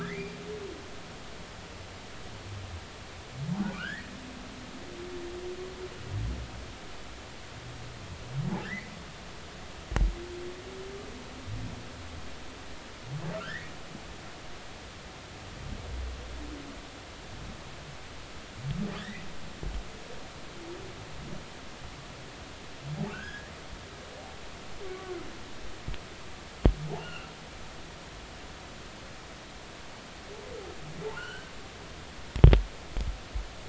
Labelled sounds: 0.0	0.4	humpback whale, 1.5 to 4.8 kHz
3.5	4.1	humpback whale, 0.80 to 2.0 kHz
8.5	8.9	humpback whale, 1.5 to 2.4 kHz
13.3	13.7	humpback whale, 1.2 to 2.0 kHz
19.0	19.2	humpback whale, 1.6 to 2.1 kHz
23.1	23.5	humpback whale, 1.4 to 1.9 kHz
27.0	27.3	humpback whale, 1.3 to 2.9 kHz
31.1	31.5	humpback whale, 1.3 to 3.1 kHz

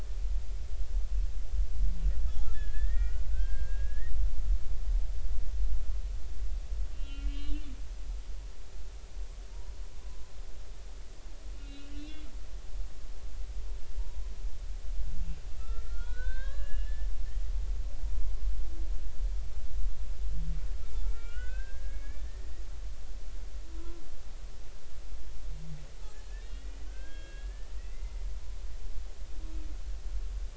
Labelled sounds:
2.5	4.1	humpback whale, 1.4 to 3.3 kHz
6.9	7.7	humpback whale, 1.3 to 4.1 kHz
10.0	10.3	humpback whale, 0.96 to 1.1 kHz
11.6	12.2	humpback whale, 2.6 to 2.9 kHz
12.6	12.9	humpback whale, 2.5 to 3.7 kHz
15.7	17.5	humpback whale, 0.96 to 4.3 kHz
20.9	22.6	humpback whale, 0.86 to 3.0 kHz
23.7	24.0	humpback whale, 0.96 to 1.1 kHz
26.3	28.3	humpback whale, 1.5 to 3.4 kHz

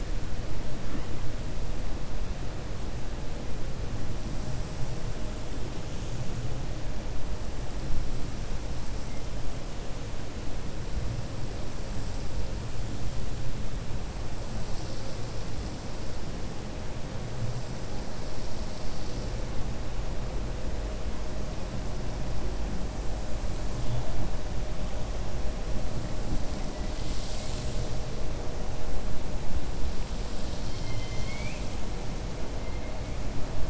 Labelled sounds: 30.4	31.7	killer whale, 2.1 to 7.8 kHz

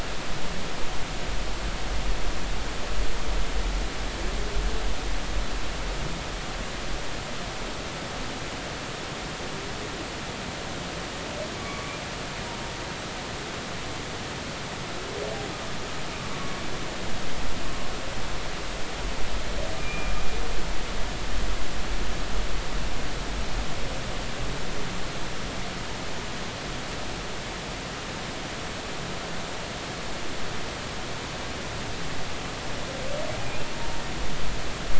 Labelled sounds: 11.6	12.0	humpback whale, 1.0 to 1.2 kHz
16.3	16.6	humpback whale, 1.1 to 1.2 kHz
19.8	20.1	humpback whale, 2.3 to 2.5 kHz

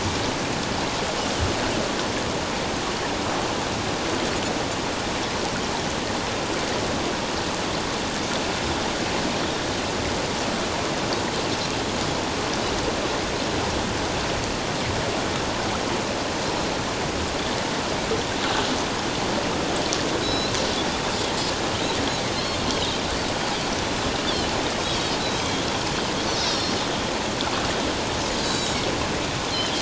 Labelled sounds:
20.2	20.5	Pacific white-sided dolphin, 3.8 to 5.3 kHz
24.9	25.6	Pacific white-sided dolphin, 3.0 to 4.5 kHz
26.4	26.7	Pacific white-sided dolphin, 4.8 to 5.7 kHz
28.4	28.8	Pacific white-sided dolphin, 3.7 to 4.2 kHz

